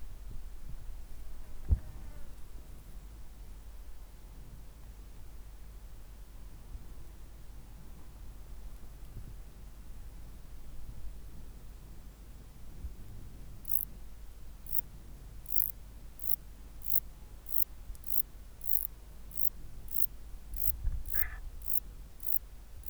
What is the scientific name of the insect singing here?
Metrioptera buyssoni